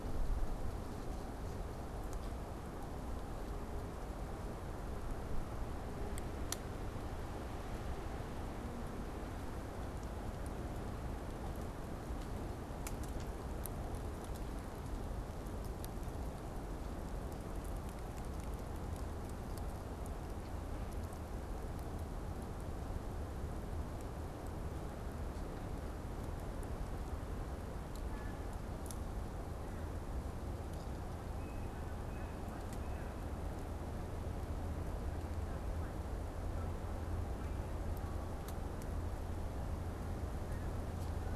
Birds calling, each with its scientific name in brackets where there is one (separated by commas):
Yellow-bellied Sapsucker (Sphyrapicus varius)